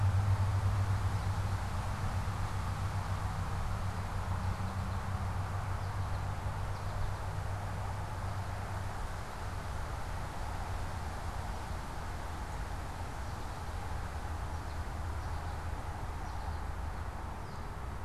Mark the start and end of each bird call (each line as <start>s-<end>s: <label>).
4.1s-8.9s: American Goldfinch (Spinus tristis)
13.1s-18.0s: American Goldfinch (Spinus tristis)